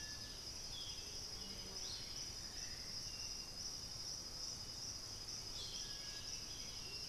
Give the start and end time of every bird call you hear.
[0.00, 1.30] Boat-billed Flycatcher (Megarynchus pitangua)
[0.00, 7.09] Striped Cuckoo (Tapera naevia)
[6.20, 7.09] Bluish-fronted Jacamar (Galbula cyanescens)

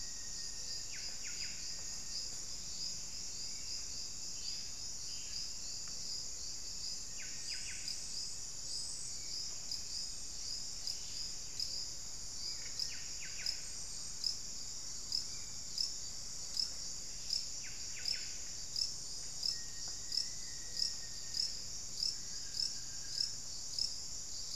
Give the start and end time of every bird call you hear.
[0.00, 1.26] Black-faced Antthrush (Formicarius analis)
[0.00, 2.26] Little Tinamou (Crypturellus soui)
[0.76, 8.06] Buff-breasted Wren (Cantorchilus leucotis)
[6.86, 7.76] Little Tinamou (Crypturellus soui)
[9.06, 9.36] Hauxwell's Thrush (Turdus hauxwelli)
[10.66, 11.46] unidentified bird
[12.56, 13.66] Buff-breasted Wren (Cantorchilus leucotis)
[15.16, 15.56] Hauxwell's Thrush (Turdus hauxwelli)
[17.36, 18.56] Buff-breasted Wren (Cantorchilus leucotis)
[19.26, 21.66] Black-faced Antthrush (Formicarius analis)
[22.06, 23.46] unidentified bird

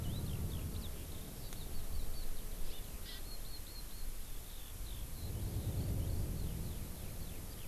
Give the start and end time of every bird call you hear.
[0.00, 7.67] Eurasian Skylark (Alauda arvensis)
[2.61, 3.21] Hawaii Amakihi (Chlorodrepanis virens)

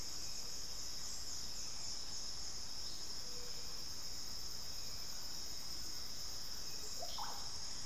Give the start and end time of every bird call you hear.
[0.00, 7.86] Hauxwell's Thrush (Turdus hauxwelli)
[6.69, 7.59] Russet-backed Oropendola (Psarocolius angustifrons)

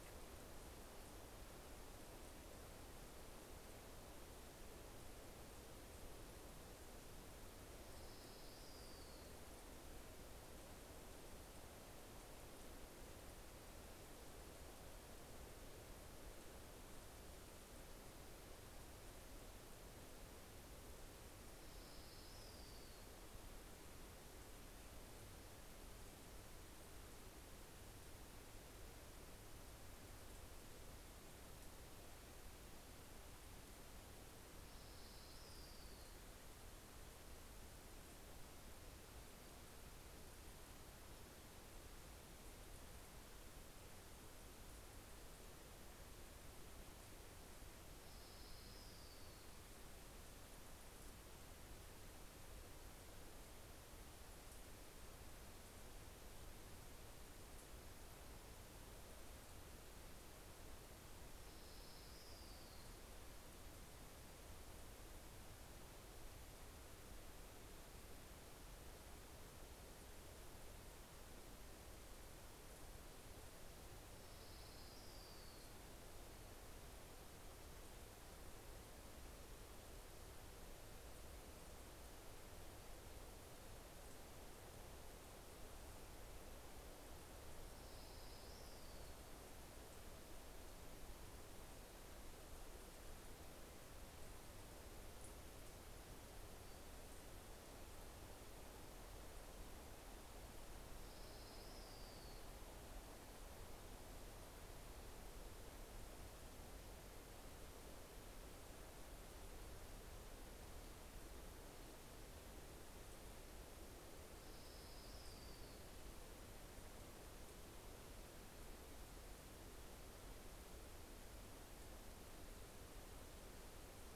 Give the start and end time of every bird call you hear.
[6.84, 9.84] Orange-crowned Warbler (Leiothlypis celata)
[21.54, 24.04] Orange-crowned Warbler (Leiothlypis celata)
[34.04, 36.44] Orange-crowned Warbler (Leiothlypis celata)
[47.14, 50.04] Orange-crowned Warbler (Leiothlypis celata)
[60.64, 63.54] Orange-crowned Warbler (Leiothlypis celata)
[74.04, 76.34] Orange-crowned Warbler (Leiothlypis celata)
[87.34, 89.64] Orange-crowned Warbler (Leiothlypis celata)
[96.14, 97.34] Pacific-slope Flycatcher (Empidonax difficilis)
[99.84, 103.54] Orange-crowned Warbler (Leiothlypis celata)
[113.94, 116.44] Orange-crowned Warbler (Leiothlypis celata)

